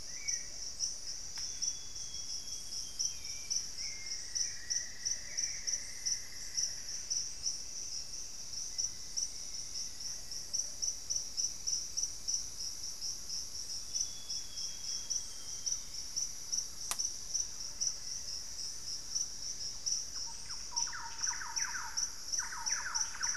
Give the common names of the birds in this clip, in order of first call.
Hauxwell's Thrush, Plumbeous Pigeon, Solitary Black Cacique, Amazonian Grosbeak, Cinnamon-throated Woodcreeper, Black-faced Antthrush, Thrush-like Wren, Elegant Woodcreeper